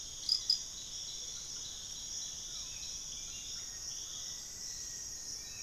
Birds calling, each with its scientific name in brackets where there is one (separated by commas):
Black-faced Antthrush (Formicarius analis), unidentified bird, Screaming Piha (Lipaugus vociferans), Amazonian Motmot (Momotus momota), Hauxwell's Thrush (Turdus hauxwelli)